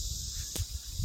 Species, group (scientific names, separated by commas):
Psaltoda plaga, Cicadidae